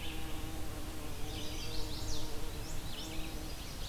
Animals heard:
Chestnut-sided Warbler (Setophaga pensylvanica), Red-eyed Vireo (Vireo olivaceus), American Goldfinch (Spinus tristis)

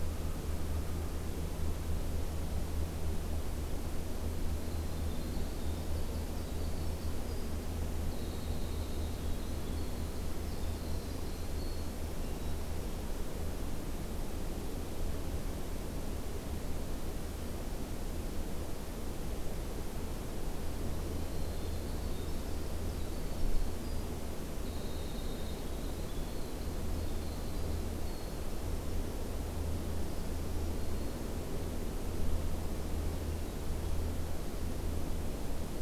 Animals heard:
Black-throated Green Warbler (Setophaga virens), Hermit Thrush (Catharus guttatus), Winter Wren (Troglodytes hiemalis)

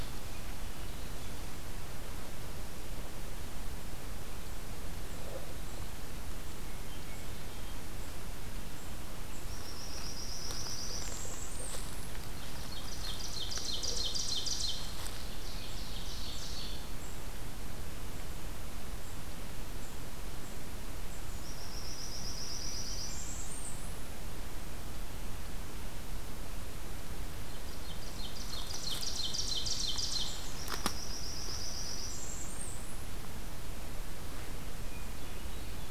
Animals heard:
Hermit Thrush (Catharus guttatus), Blackburnian Warbler (Setophaga fusca), Ovenbird (Seiurus aurocapilla)

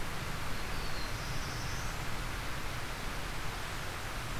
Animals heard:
Black-throated Blue Warbler (Setophaga caerulescens)

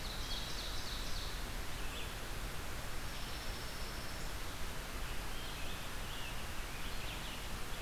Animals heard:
Ovenbird (Seiurus aurocapilla), Scarlet Tanager (Piranga olivacea), Red-eyed Vireo (Vireo olivaceus), Pine Warbler (Setophaga pinus)

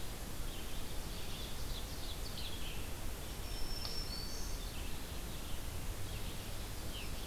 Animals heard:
Ovenbird (Seiurus aurocapilla), Red-eyed Vireo (Vireo olivaceus), Black-throated Green Warbler (Setophaga virens)

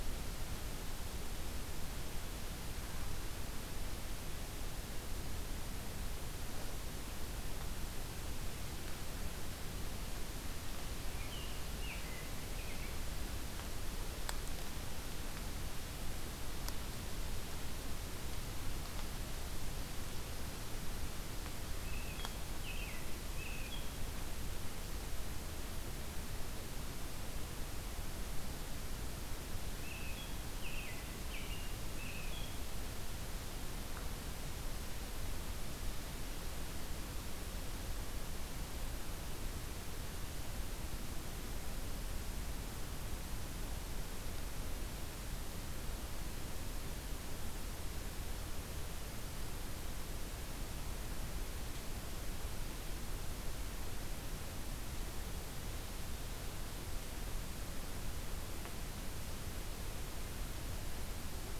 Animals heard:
American Robin (Turdus migratorius)

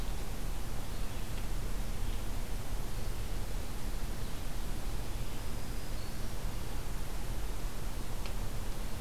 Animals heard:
Red-eyed Vireo (Vireo olivaceus), Black-throated Green Warbler (Setophaga virens)

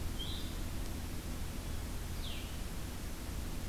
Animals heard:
Blue-headed Vireo (Vireo solitarius)

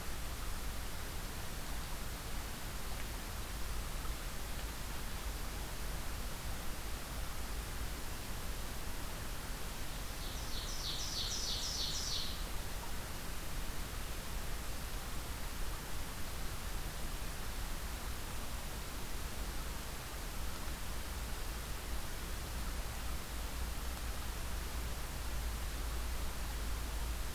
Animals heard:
Ovenbird (Seiurus aurocapilla)

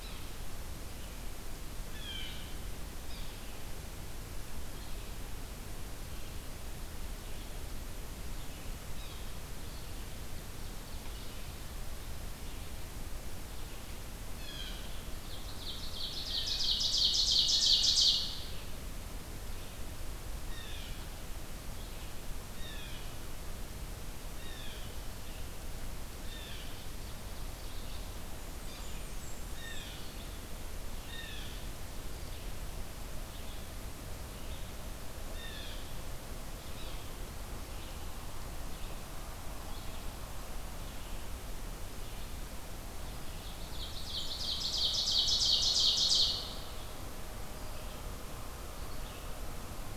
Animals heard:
Ovenbird (Seiurus aurocapilla), Yellow-bellied Sapsucker (Sphyrapicus varius), Blackburnian Warbler (Setophaga fusca), Red-eyed Vireo (Vireo olivaceus), Blue Jay (Cyanocitta cristata)

